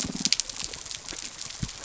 {"label": "biophony", "recorder": "SoundTrap 300"}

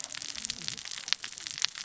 {"label": "biophony, cascading saw", "recorder": "SoundTrap 600 or HydroMoth"}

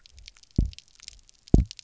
{"label": "biophony, double pulse", "recorder": "SoundTrap 300"}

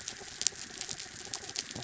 {"label": "anthrophony, mechanical", "recorder": "SoundTrap 300"}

